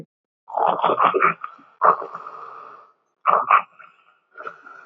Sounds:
Sniff